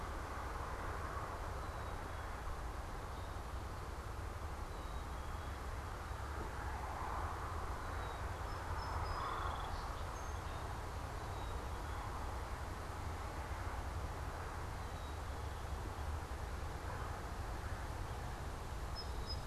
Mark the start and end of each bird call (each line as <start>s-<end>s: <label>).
0.0s-19.5s: Black-capped Chickadee (Poecile atricapillus)
8.3s-10.6s: Song Sparrow (Melospiza melodia)
18.8s-19.5s: Song Sparrow (Melospiza melodia)